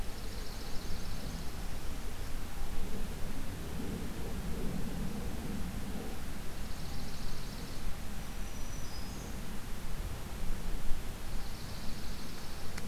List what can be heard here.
Swamp Sparrow, Black-throated Green Warbler